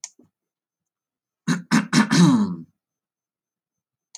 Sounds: Throat clearing